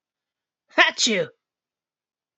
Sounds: Sneeze